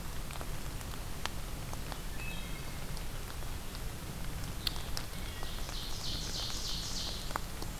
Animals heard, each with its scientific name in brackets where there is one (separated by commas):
Blue-headed Vireo (Vireo solitarius), Ovenbird (Seiurus aurocapilla), Wood Thrush (Hylocichla mustelina)